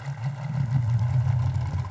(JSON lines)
{"label": "anthrophony, boat engine", "recorder": "SoundTrap 500"}